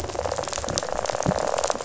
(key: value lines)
label: biophony, rattle
recorder: SoundTrap 500